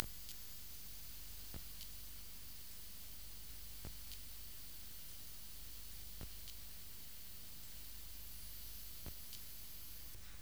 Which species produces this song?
Leptophyes albovittata